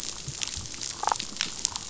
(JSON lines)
{"label": "biophony, damselfish", "recorder": "SoundTrap 500"}